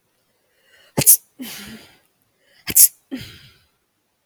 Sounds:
Sneeze